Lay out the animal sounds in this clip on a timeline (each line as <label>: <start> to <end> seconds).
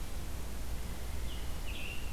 Red-eyed Vireo (Vireo olivaceus): 0.0 to 2.1 seconds
Scarlet Tanager (Piranga olivacea): 1.0 to 2.1 seconds